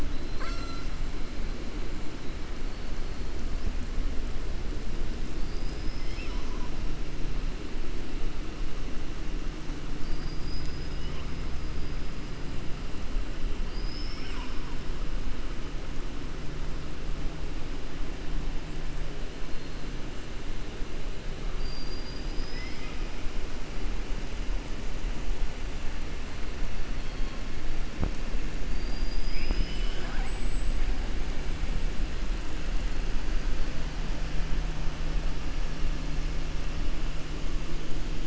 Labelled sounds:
0.1	0.9	killer whale, southern resident, 0.65 to 7.6 kHz
5.3	6.7	killer whale, southern resident, 0.98 to 6.1 kHz
9.9	11.0	killer whale, southern resident, 4.6 to 7.3 kHz
13.6	14.7	killer whale, southern resident, 0.96 to 7.6 kHz
21.5	23.0	killer whale, southern resident, 1.3 to 5.5 kHz
28.6	30.4	killer whale, southern resident, 0.17 to 5.5 kHz

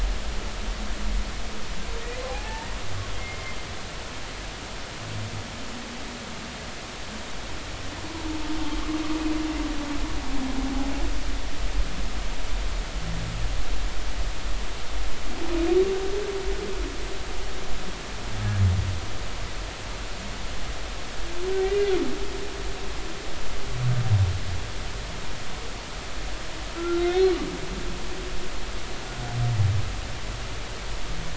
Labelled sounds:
2.3	2.7	humpback whale, 0.80 to 0.96 kHz
3.2	3.6	humpback whale, 2.0 to 2.2 kHz
21.6	21.9	humpback whale, 1.9 to 2.1 kHz
26.8	27.3	humpback whale, 1.3 to 3.8 kHz

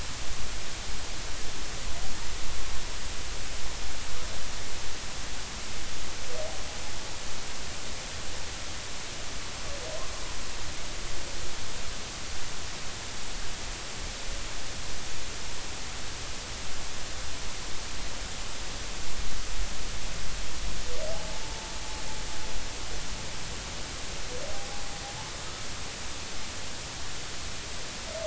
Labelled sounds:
21.1	21.4	humpback whale, 0.80 to 0.93 kHz

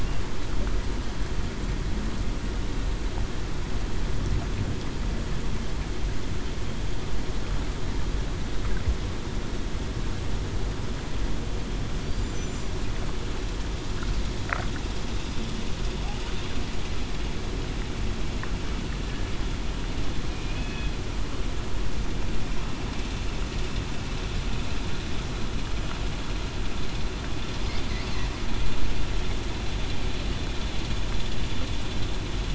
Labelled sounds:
20.3	20.9	killer whale, southern resident, 2.4 to 2.6 kHz

